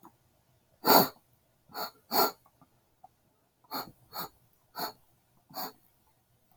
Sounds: Sniff